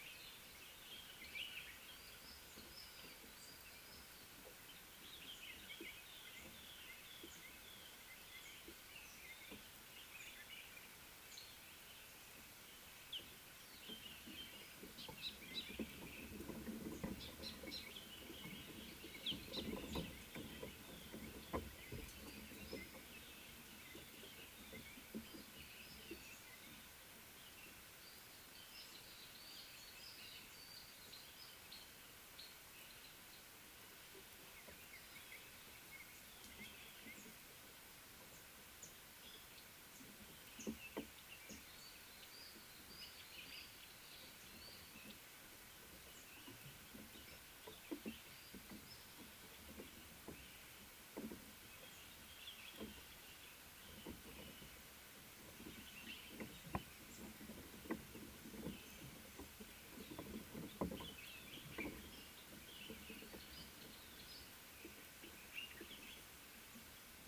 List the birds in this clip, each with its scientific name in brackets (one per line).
Little Bee-eater (Merops pusillus)
Common Bulbul (Pycnonotus barbatus)
Scarlet-chested Sunbird (Chalcomitra senegalensis)